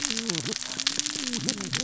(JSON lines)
{"label": "biophony, cascading saw", "recorder": "SoundTrap 600 or HydroMoth"}